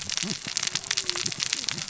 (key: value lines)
label: biophony, cascading saw
recorder: SoundTrap 600 or HydroMoth